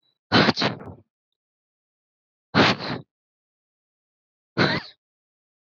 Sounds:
Sneeze